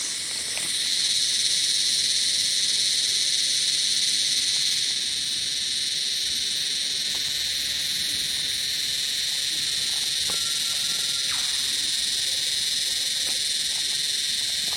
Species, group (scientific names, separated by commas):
Psaltoda harrisii, Cicadidae